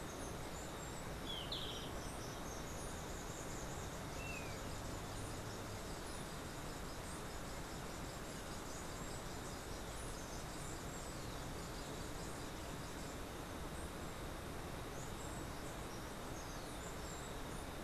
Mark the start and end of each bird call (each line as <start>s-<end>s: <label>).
0.0s-2.0s: Golden-faced Tyrannulet (Zimmerius chrysops)
0.0s-2.3s: Steely-vented Hummingbird (Saucerottia saucerottei)
1.5s-13.7s: Black-capped Tanager (Stilpnia heinei)
4.1s-4.6s: Golden-faced Tyrannulet (Zimmerius chrysops)
14.9s-17.8s: Steely-vented Hummingbird (Saucerottia saucerottei)